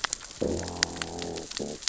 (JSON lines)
{"label": "biophony, growl", "recorder": "SoundTrap 600 or HydroMoth"}